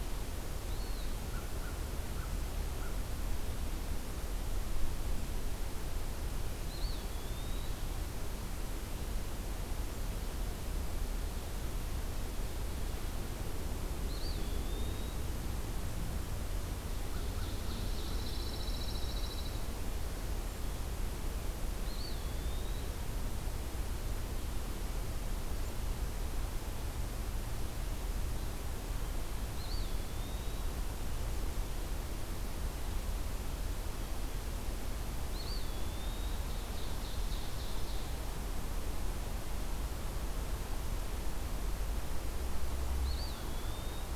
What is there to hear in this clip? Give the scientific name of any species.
Contopus virens, Corvus brachyrhynchos, Seiurus aurocapilla, Setophaga pinus